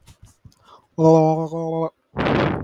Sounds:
Throat clearing